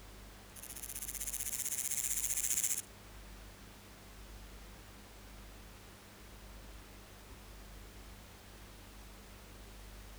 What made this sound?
Stenobothrus stigmaticus, an orthopteran